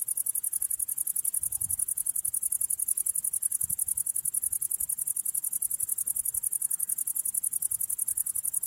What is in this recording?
Tettigonia viridissima, an orthopteran